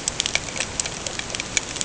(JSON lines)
{"label": "ambient", "recorder": "HydroMoth"}